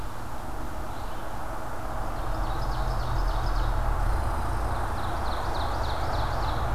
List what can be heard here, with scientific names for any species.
Vireo olivaceus, Seiurus aurocapilla, Tamiasciurus hudsonicus